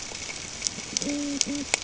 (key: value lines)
label: ambient
recorder: HydroMoth